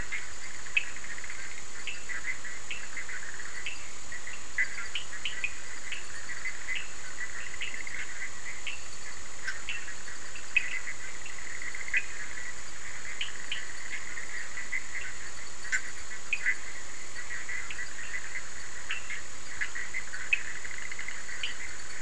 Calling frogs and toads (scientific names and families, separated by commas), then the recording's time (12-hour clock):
Boana bischoffi (Hylidae), Sphaenorhynchus surdus (Hylidae)
11:30pm